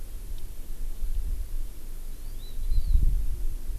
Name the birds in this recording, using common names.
Hawaii Amakihi